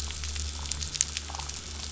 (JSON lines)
{"label": "anthrophony, boat engine", "recorder": "SoundTrap 500"}